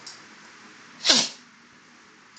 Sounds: Sniff